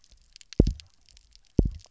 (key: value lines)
label: biophony, double pulse
recorder: SoundTrap 300